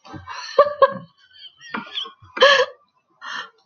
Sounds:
Laughter